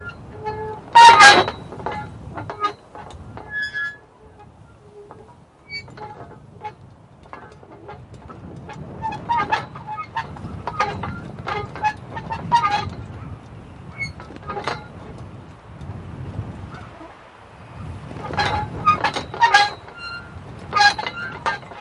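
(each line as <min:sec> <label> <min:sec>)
0:00.0 A hinge squeaks repeatedly in the background. 0:04.0
0:00.9 A hinge squeaks loudly. 0:01.5
0:05.0 A hinge squeaks repeatedly in the background. 0:09.1
0:09.1 A hinge squeaks loudly. 0:12.9
0:13.9 A hinge squeaks repeatedly in the background. 0:14.9
0:18.3 A hinge squeaks loudly. 0:19.8
0:20.7 A hinge squeaks loudly. 0:21.6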